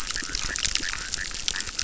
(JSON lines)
{"label": "biophony, chorus", "recorder": "SoundTrap 600"}